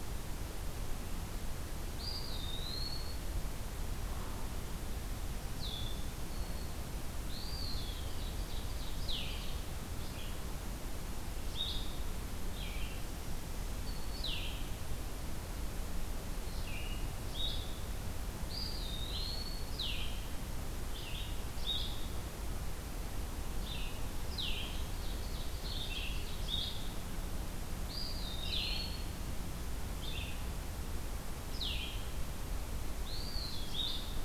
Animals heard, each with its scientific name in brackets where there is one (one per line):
Red-eyed Vireo (Vireo olivaceus)
Eastern Wood-Pewee (Contopus virens)
Blue-headed Vireo (Vireo solitarius)
Black-throated Green Warbler (Setophaga virens)
Ovenbird (Seiurus aurocapilla)